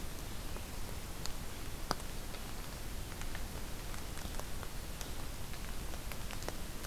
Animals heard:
forest ambience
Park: Acadia National Park